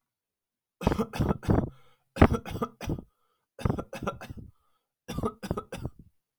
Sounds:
Cough